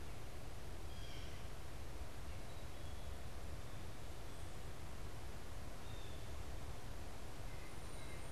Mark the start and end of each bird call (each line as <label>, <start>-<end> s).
White-breasted Nuthatch (Sitta carolinensis), 0.0-2.4 s
Blue Jay (Cyanocitta cristata), 0.0-3.4 s
Blue Jay (Cyanocitta cristata), 5.8-8.3 s
White-breasted Nuthatch (Sitta carolinensis), 7.1-8.3 s